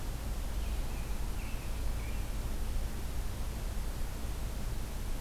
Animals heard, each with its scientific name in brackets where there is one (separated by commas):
American Robin (Turdus migratorius)